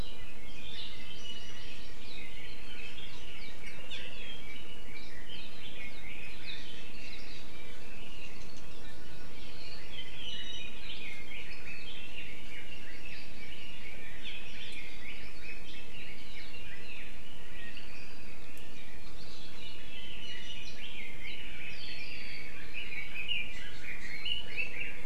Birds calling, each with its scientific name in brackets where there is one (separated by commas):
Apapane (Himatione sanguinea), Hawaii Amakihi (Chlorodrepanis virens), Red-billed Leiothrix (Leiothrix lutea)